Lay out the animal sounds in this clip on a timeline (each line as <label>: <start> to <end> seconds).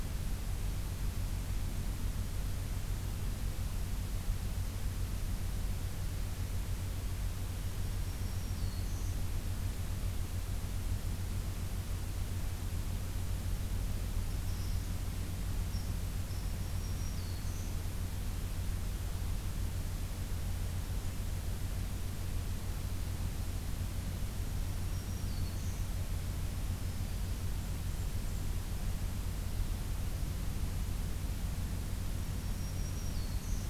Black-throated Green Warbler (Setophaga virens): 7.6 to 9.2 seconds
Red Squirrel (Tamiasciurus hudsonicus): 14.2 to 16.5 seconds
Black-throated Green Warbler (Setophaga virens): 16.2 to 17.7 seconds
Black-throated Green Warbler (Setophaga virens): 24.5 to 25.8 seconds
Black-throated Green Warbler (Setophaga virens): 26.2 to 27.4 seconds
Blackburnian Warbler (Setophaga fusca): 27.6 to 28.5 seconds
Black-throated Green Warbler (Setophaga virens): 32.2 to 33.7 seconds